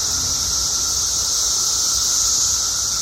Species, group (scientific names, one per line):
Magicicada septendecim
Cicadidae